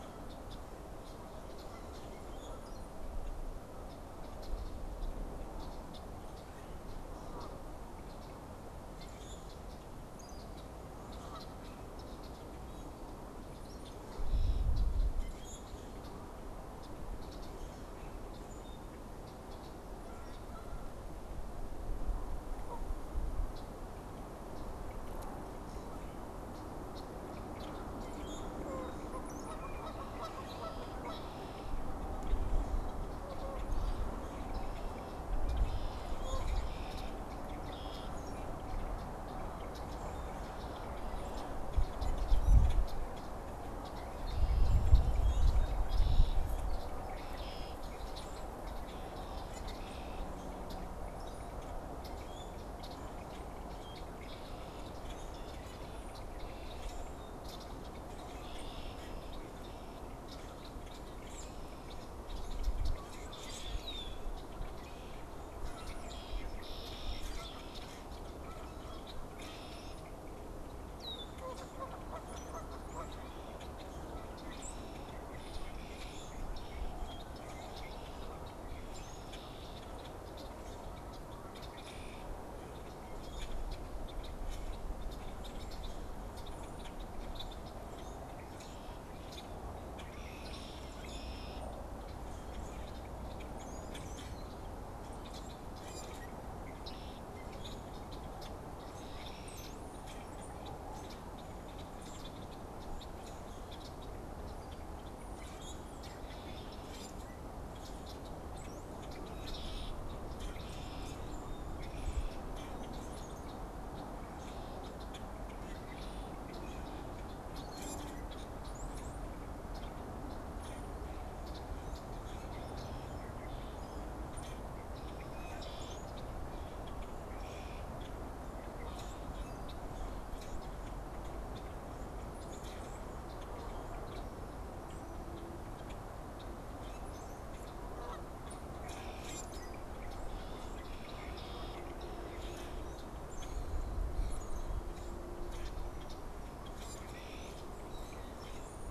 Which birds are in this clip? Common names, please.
unidentified bird, Common Grackle, Canada Goose, Red-winged Blackbird, Brown-headed Cowbird